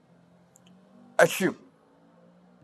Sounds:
Sneeze